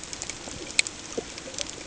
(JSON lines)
{"label": "ambient", "recorder": "HydroMoth"}